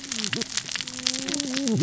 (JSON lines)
{"label": "biophony, cascading saw", "recorder": "SoundTrap 600 or HydroMoth"}